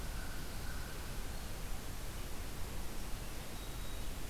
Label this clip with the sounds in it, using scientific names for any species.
Corvus brachyrhynchos, Setophaga virens